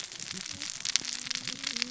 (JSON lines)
{"label": "biophony, cascading saw", "recorder": "SoundTrap 600 or HydroMoth"}